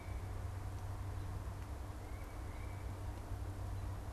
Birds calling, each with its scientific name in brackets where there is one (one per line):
Tufted Titmouse (Baeolophus bicolor)